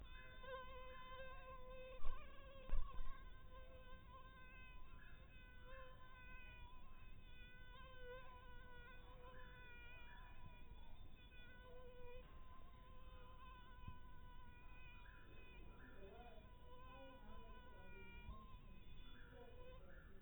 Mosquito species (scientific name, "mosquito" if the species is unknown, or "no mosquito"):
mosquito